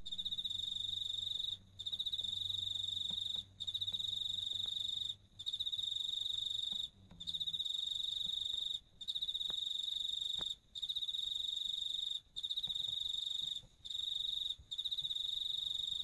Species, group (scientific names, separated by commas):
Teleogryllus commodus, Orthoptera